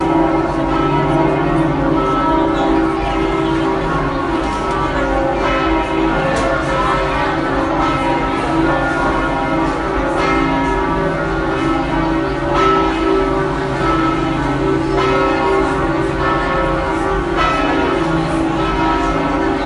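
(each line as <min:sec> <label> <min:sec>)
0:00.0 Church bells ringing constantly with people talking in the background. 0:19.7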